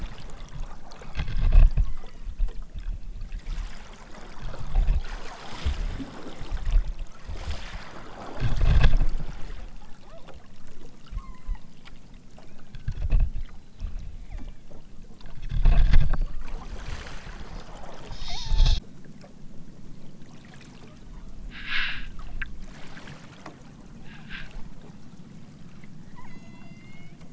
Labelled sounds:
1.3	2.3	killer whale, southern Alaska resident, 0.64 to 5.1 kHz
10.0	10.3	killer whale, southern Alaska resident, 0.23 to 3.0 kHz
11.1	11.6	killer whale, southern Alaska resident, 0.83 to 4.6 kHz
12.5	13.0	killer whale, southern Alaska resident, 1.1 to 2.8 kHz
14.3	14.6	killer whale, southern Alaska resident, 1.1 to 4.0 kHz
18.2	18.8	killer whale, southern Alaska resident, 0.41 to 1.2 kHz
21.0	21.5	killer whale, southern Alaska resident, 0.74 to 4.2 kHz
26.0	27.2	killer whale, southern Alaska resident, 0.69 to 7.0 kHz

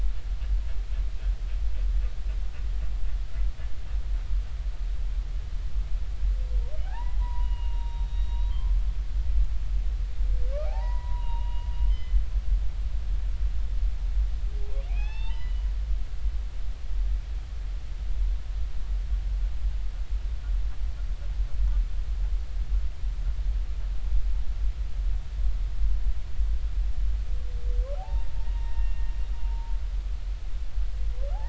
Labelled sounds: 6.8	8.8	humpback whale, 0.80 to 3.9 kHz
10.7	12.2	humpback whale, 0.80 to 4.0 kHz
14.9	15.7	humpback whale, 0.80 to 5.4 kHz
28.0	29.0	humpback whale, 0.80 to 3.9 kHz
29.4	29.7	humpback whale, 0.86 to 0.99 kHz

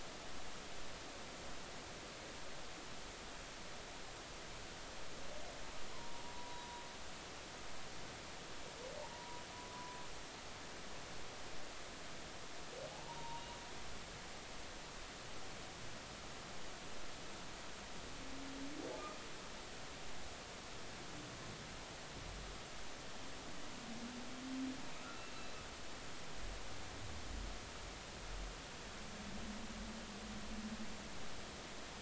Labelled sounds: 5.9	6.8	humpback whale, 0.86 to 1.1 kHz
9.1	9.4	humpback whale, 0.90 to 1.0 kHz
9.7	10.0	humpback whale, 0.96 to 1.1 kHz
12.9	13.5	humpback whale, 0.80 to 1.0 kHz

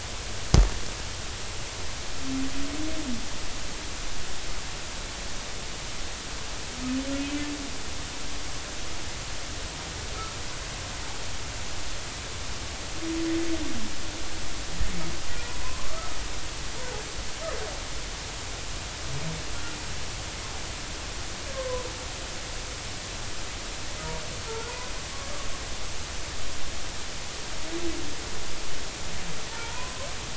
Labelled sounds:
15.4	16.0	humpback whale, 0.90 to 1.2 kHz
21.5	21.9	humpback whale, 0.96 to 1.1 kHz
24.5	24.7	humpback whale, 1.3 to 1.5 kHz
29.6	30.1	humpback whale, 0.83 to 1.1 kHz

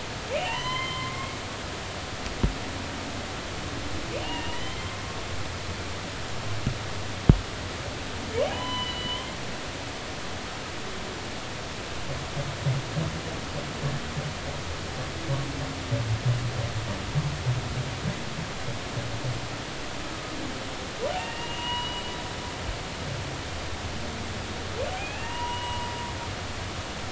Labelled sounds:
0.4	1.4	humpback whale, 0.86 to 4.3 kHz
4.2	4.9	humpback whale, 1.9 to 3.2 kHz
8.5	9.3	humpback whale, 0.80 to 4.2 kHz
21.2	22.0	humpback whale, 0.90 to 3.0 kHz
25.0	25.9	humpback whale, 0.90 to 3.0 kHz

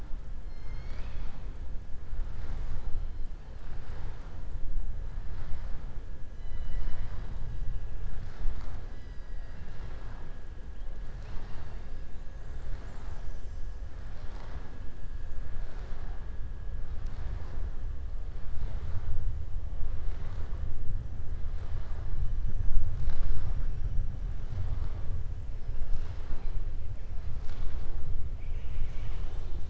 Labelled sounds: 0.4	1.4	killer whale, southern resident, 1.0 to 6.9 kHz
28.3	29.6	killer whale, southern resident, 0.80 to 7.5 kHz

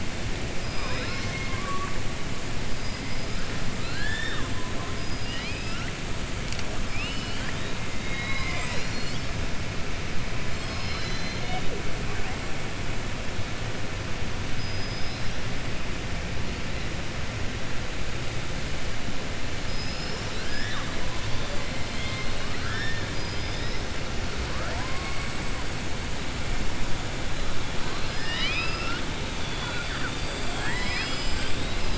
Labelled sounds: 0.6	1.9	killer whale, southern resident, 0.52 to 6.1 kHz
3.7	4.5	killer whale, southern resident, 1.1 to 5.5 kHz
5.0	5.9	killer whale, southern resident, 1.3 to 5.6 kHz
6.8	7.7	killer whale, southern resident, 1.5 to 5.2 kHz
8.0	9.3	killer whale, southern resident, 0.61 to 7.9 kHz
14.5	15.4	killer whale, southern resident, 3.6 to 5.8 kHz
19.6	20.9	killer whale, southern resident, 1.1 to 6.0 kHz
27.9	29.0	killer whale, southern resident, 1.3 to 5.9 kHz

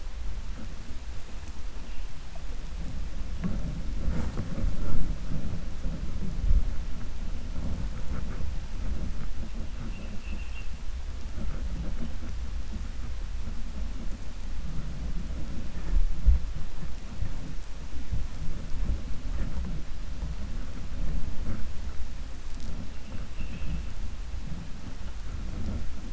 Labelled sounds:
23.2	23.8	vessel noise, 1.7 to 3.4 kHz

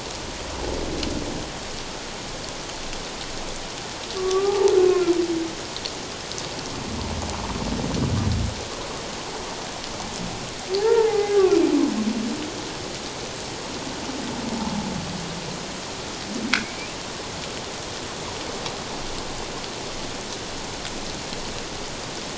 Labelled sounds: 4.1	4.7	humpback whale, 0.78 to 1.3 kHz
10.8	11.6	humpback whale, 0.78 to 2.1 kHz
16.6	17.0	humpback whale, 2.1 to 2.8 kHz

